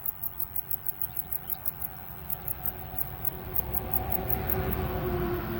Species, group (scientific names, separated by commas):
Pholidoptera griseoaptera, Orthoptera